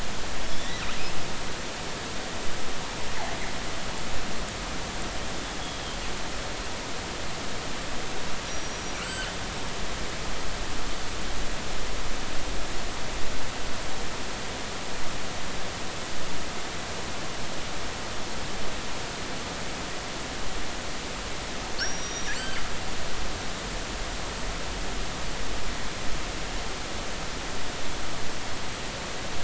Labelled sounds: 0.5	0.7	killer whale, northern resident, G clan, 3.3 to 3.7 kHz
5.6	6.0	killer whale, northern resident, G clan, call N23i, 3.1 to 3.5 kHz
8.5	9.3	killer whale, northern resident, G clan, call N23i, 1.3 to 5.8 kHz
21.8	22.6	killer whale, northern resident, G clan, call N23i, 3.6 to 5.9 kHz

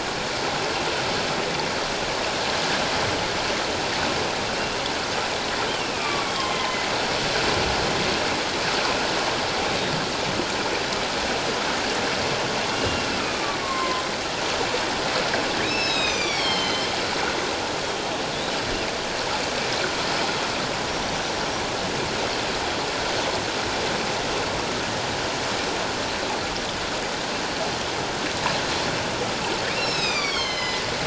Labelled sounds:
5.7	6.8	killer whale, northern resident, A clan, AA subclan, A04 pod, call N04, 0.81 to 3.3 kHz
12.8	14.0	killer whale, northern resident, A clan, AA subclan, A04 pod, call N04, 0.97 to 2.9 kHz
15.6	16.9	killer whale, northern resident, A clan, AA subclan, A04 pod, call N04, 2.1 to 6.4 kHz
29.7	30.8	killer whale, northern resident, A clan, AA subclan, A04 pod, call N04, 1.0 to 7.8 kHz

